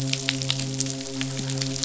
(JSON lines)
{"label": "biophony, midshipman", "recorder": "SoundTrap 500"}